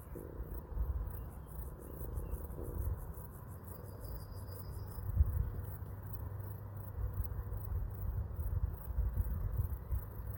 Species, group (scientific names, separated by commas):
Chorthippus vagans, Orthoptera